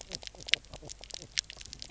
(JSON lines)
{"label": "biophony, knock croak", "recorder": "SoundTrap 300"}